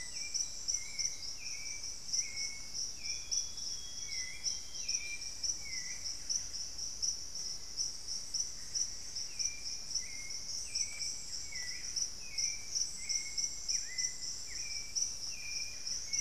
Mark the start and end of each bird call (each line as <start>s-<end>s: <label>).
0.0s-16.2s: Buff-breasted Wren (Cantorchilus leucotis)
0.0s-16.2s: Hauxwell's Thrush (Turdus hauxwelli)
0.1s-6.9s: Lemon-throated Barbet (Eubucco richardsoni)
2.8s-5.3s: Amazonian Grosbeak (Cyanoloxia rothschildii)
3.6s-9.4s: Black-faced Antthrush (Formicarius analis)